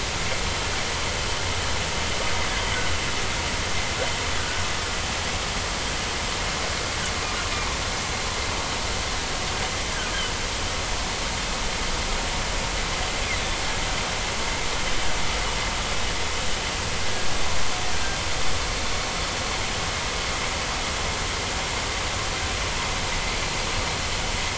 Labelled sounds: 4.4	4.6	humpback whale, 1.4 to 1.6 kHz

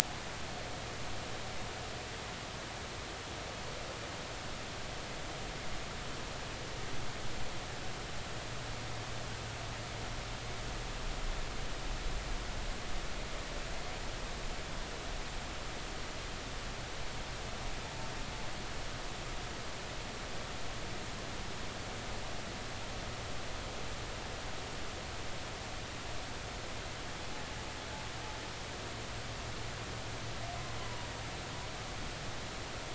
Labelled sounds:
30.8	31.1	humpback whale, 0.93 to 1.1 kHz

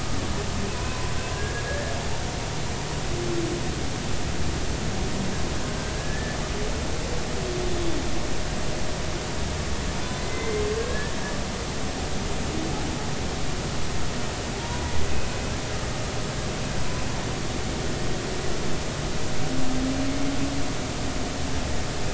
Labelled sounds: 0.7	1.6	humpback whale, 0.93 to 2.7 kHz
2.6	2.9	humpback whale, 1.6 to 1.8 kHz
6.0	6.4	humpback whale, 1.6 to 1.8 kHz
7.7	8.0	humpback whale, 3.4 to 3.6 kHz
10.2	11.1	humpback whale, 1.6 to 2.1 kHz
14.5	14.9	humpback whale, 0.80 to 1.0 kHz

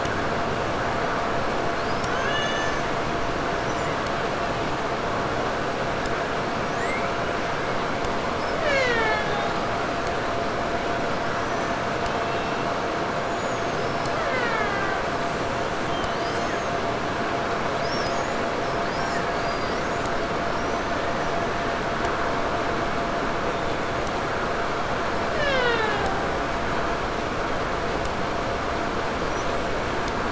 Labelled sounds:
1.7	4.2	killer whale, Bigg's (transient), 0.72 to 8.0 kHz
6.3	7.8	killer whale, 0.90 to 8.0 kHz
8.2	9.8	killer whale, Bigg's (transient), 0.25 to 8.0 kHz
10.9	13.8	killer whale, 0.39 to 7.6 kHz
13.6	15.3	killer whale, Bigg's (transient), 0.25 to 5.6 kHz
15.8	16.9	killer whale, 0.92 to 8.0 kHz
17.5	22.0	killer whale, 1.2 to 8.0 kHz
25.1	26.8	killer whale, Bigg's (transient), 0.29 to 8.0 kHz
28.9	29.9	killer whale, 4.3 to 7.9 kHz

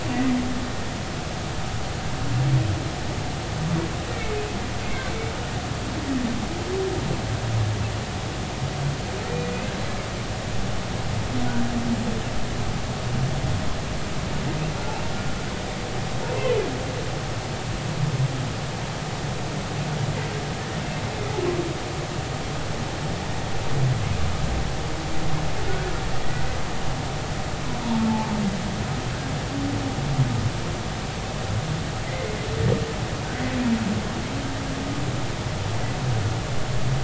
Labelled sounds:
4.8	5.1	humpback whale, 2.0 to 2.3 kHz
16.4	16.6	humpback whale, 2.9 to 3.2 kHz

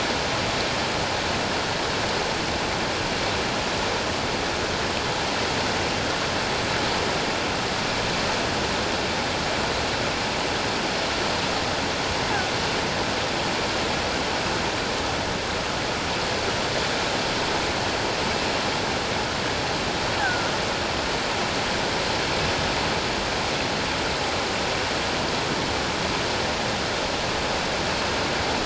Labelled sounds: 20.2	20.5	killer whale, offshore, 1.3 to 1.8 kHz

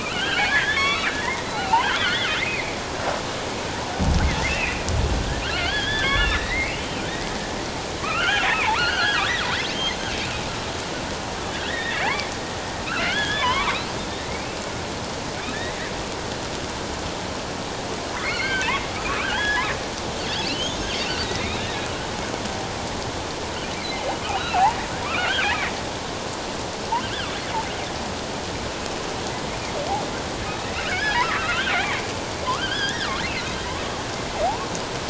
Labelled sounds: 0.0	2.8	killer whale, offshore, 0.78 to 4.6 kHz
4.5	4.9	killer whale, offshore, 2.3 to 2.8 kHz
5.5	7.0	killer whale, offshore, 1.3 to 4.4 kHz
8.0	10.0	killer whale, offshore, 1.0 to 6.4 kHz
11.6	12.3	killer whale, offshore, 1.4 to 3.8 kHz
12.8	13.8	killer whale, offshore, 0.88 to 3.5 kHz
14.2	14.6	killer whale, offshore, 1.8 to 2.7 kHz
15.5	15.8	killer whale, offshore, 1.6 to 2.1 kHz
18.2	19.7	killer whale, offshore, 1.0 to 4.4 kHz
20.4	20.9	killer whale, offshore, 2.6 to 6.6 kHz
21.2	21.8	killer whale, offshore, 1.6 to 4.0 kHz
24.2	25.7	killer whale, offshore, 1.1 to 3.0 kHz
30.4	32.0	killer whale, offshore, 1.1 to 3.3 kHz
32.4	33.1	killer whale, offshore, 0.94 to 3.6 kHz
34.4	34.7	killer whale, offshore, 0.78 to 1.2 kHz

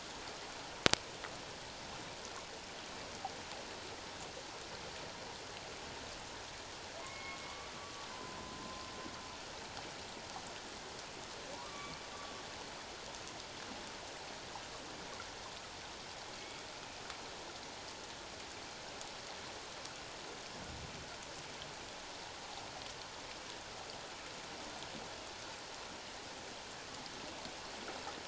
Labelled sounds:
7.0	7.4	humpback whale, 2.0 to 2.3 kHz
8.1	8.9	humpback whale, 0.81 to 1.1 kHz
11.5	12.0	humpback whale, 0.88 to 2.4 kHz

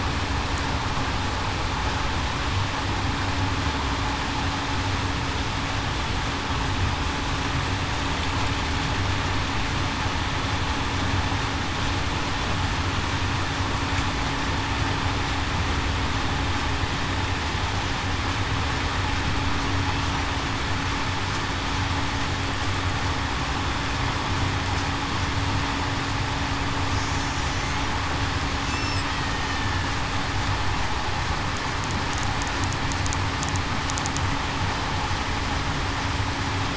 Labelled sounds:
27.5	27.8	killer whale, Bigg's (transient), 5.8 to 6.5 kHz
29.5	29.9	killer whale, Bigg's (transient), 1.7 to 1.8 kHz

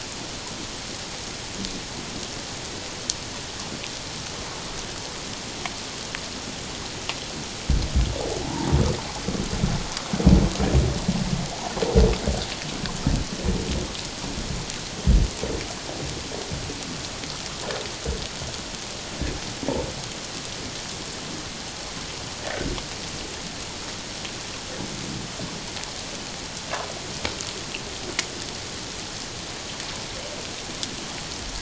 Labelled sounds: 8.4	8.7	humpback whale, 0.78 to 1.0 kHz

